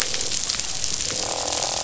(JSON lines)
{"label": "biophony, croak", "recorder": "SoundTrap 500"}